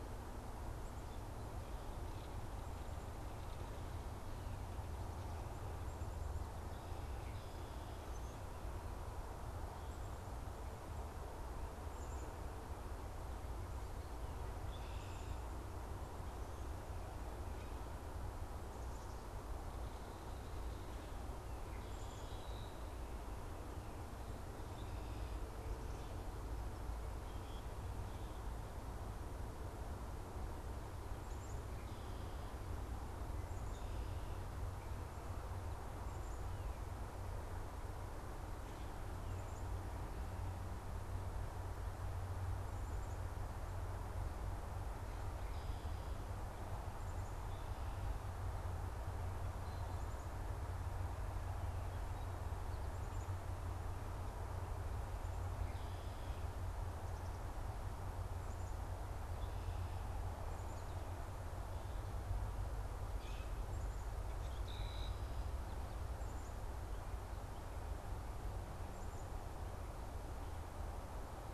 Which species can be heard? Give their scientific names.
Poecile atricapillus, Agelaius phoeniceus, Quiscalus quiscula, unidentified bird